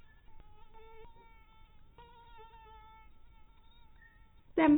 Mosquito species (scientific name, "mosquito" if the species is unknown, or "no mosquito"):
mosquito